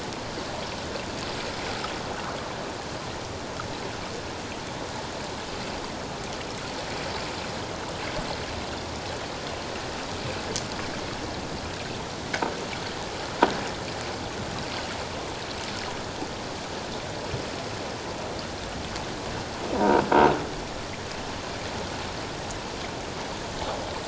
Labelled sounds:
19.7	20.0	croaking sound likely from a nearby submerged object, 0.88 to 1.0 kHz

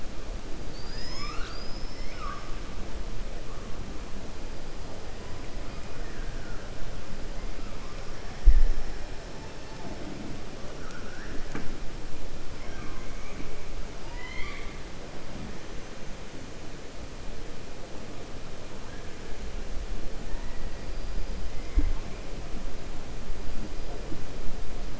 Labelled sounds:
0.6	2.5	killer whale, 1.1 to 7.2 kHz
5.9	6.6	killer whale, 1.3 to 2.0 kHz
14.0	14.8	killer whale, 0.94 to 4.7 kHz

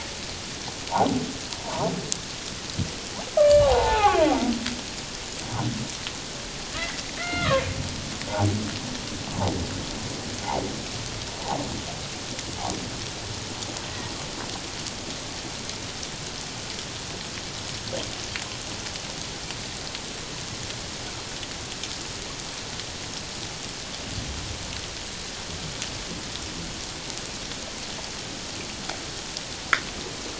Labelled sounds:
1.6	1.9	humpback whale, 0.78 to 1.2 kHz
3.4	4.2	humpback whale, 0.78 to 3.0 kHz
6.7	7.6	humpback whale, 0.94 to 2.2 kHz

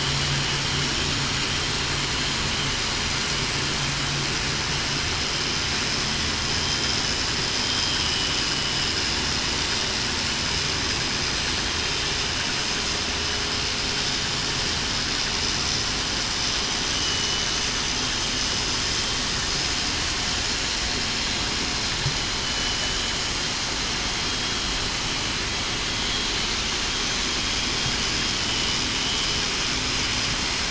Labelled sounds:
22.4	23.0	vessel noise, 2.95 to 3.02 kHz
28.4	28.8	vessel noise, 2.95 to 3.02 kHz

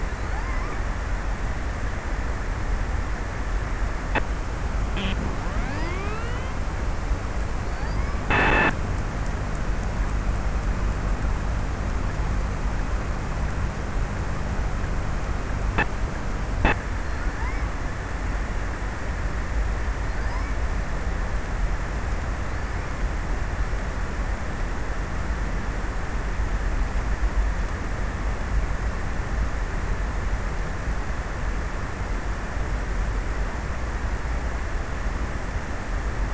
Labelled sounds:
0.0	1.1	killer whale, offshore, 0.45 to 6.1 kHz
16.8	18.3	killer whale, offshore, 0.45 to 5.5 kHz
19.9	20.9	killer whale, offshore, 0.41 to 5.7 kHz

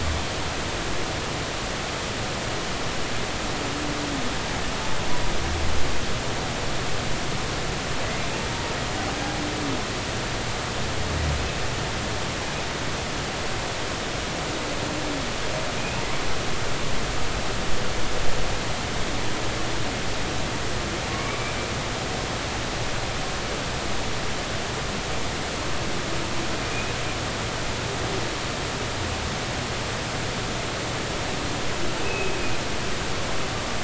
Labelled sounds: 21.2	21.5	humpback whale, 2.2 to 2.4 kHz
32.0	32.4	humpback whale, 2.5 to 2.7 kHz

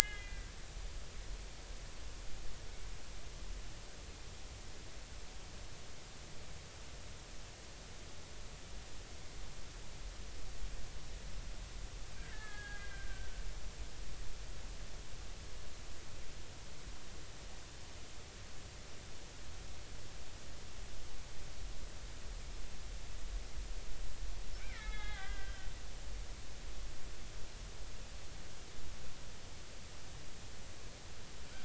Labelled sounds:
0.0	0.4	killer whale, Bigg's (transient), 2.4 to 3.0 kHz
1.0	1.5	killer whale, Bigg's (transient), 1.6 to 3.4 kHz
12.2	13.4	killer whale, Bigg's (transient), 1.2 to 3.5 kHz
24.6	25.7	killer whale, Bigg's (transient), 1.1 to 3.9 kHz

